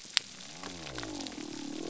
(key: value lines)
label: biophony
recorder: SoundTrap 300